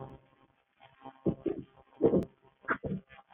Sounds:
Throat clearing